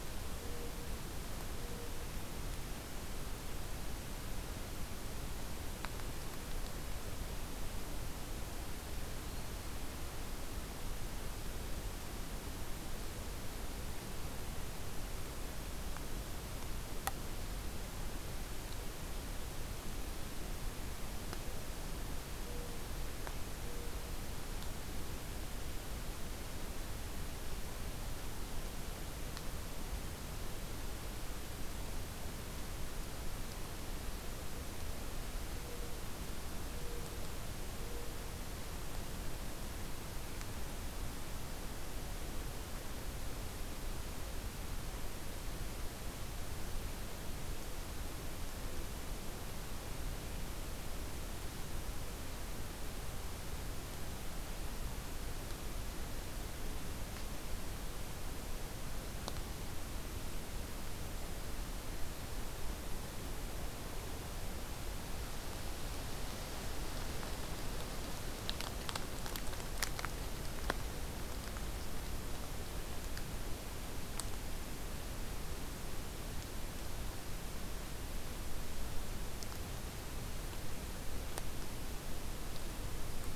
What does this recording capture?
forest ambience